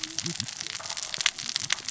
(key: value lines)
label: biophony, cascading saw
recorder: SoundTrap 600 or HydroMoth